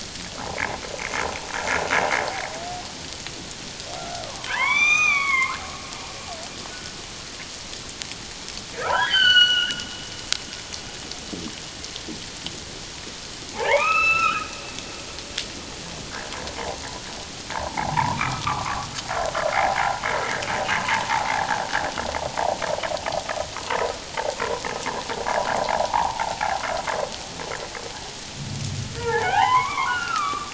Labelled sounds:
4.2	5.6	humpback whale, 0.84 to 6.2 kHz
6.7	7.0	humpback whale, 1.4 to 1.5 kHz
8.7	9.8	humpback whale, 0.78 to 6.0 kHz
13.5	14.5	humpback whale, 0.78 to 4.0 kHz
17.5	18.9	humpback whale, 0.78 to 2.5 kHz
19.5	19.8	humpback whale, 0.78 to 0.94 kHz
25.6	26.2	humpback whale, 0.78 to 1.2 kHz
29.0	30.5	humpback whale, 0.78 to 3.3 kHz

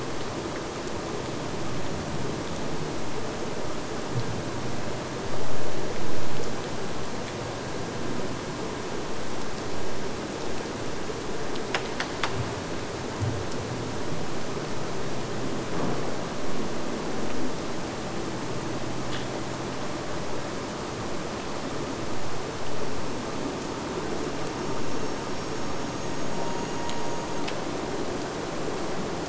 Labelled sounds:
22.7	27.6	killer whale, Bigg's (transient), AT1 transient, 0.74 to 8.0 kHz

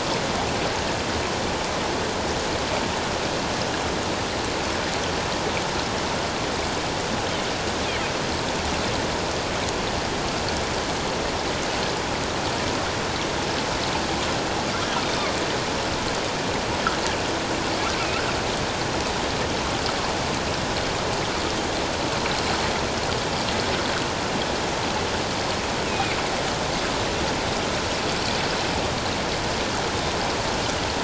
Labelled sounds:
25.9	26.1	killer whale, northern resident, 2.3 to 2.7 kHz

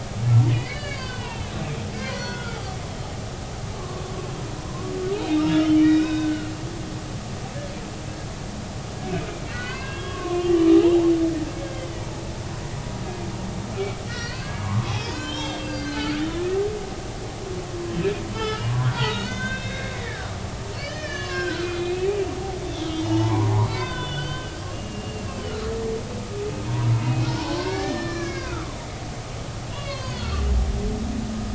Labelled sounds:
0.5	2.6	humpback whale, 0.86 to 4.9 kHz
3.8	4.3	humpback whale, 1.0 to 1.2 kHz
4.7	6.7	humpback whale, 0.96 to 3.9 kHz
9.5	10.9	humpback whale, 0.96 to 3.4 kHz
11.6	12.2	humpback whale, 0.83 to 1.7 kHz
14.1	16.5	humpback whale, 0.96 to 6.0 kHz
18.3	22.1	humpback whale, 0.83 to 6.8 kHz
22.6	25.4	humpback whale, 0.80 to 4.7 kHz
26.7	26.9	humpback whale, 0.90 to 1.1 kHz
27.2	28.7	humpback whale, 0.80 to 5.4 kHz
29.7	30.4	humpback whale, 0.96 to 6.8 kHz

